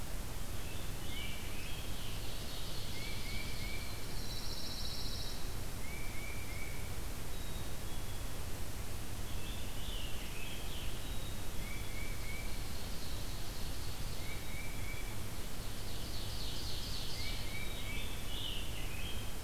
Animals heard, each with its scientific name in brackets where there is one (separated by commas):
Tufted Titmouse (Baeolophus bicolor), Pine Warbler (Setophaga pinus), Black-capped Chickadee (Poecile atricapillus), Scarlet Tanager (Piranga olivacea), Ovenbird (Seiurus aurocapilla)